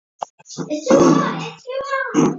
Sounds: Throat clearing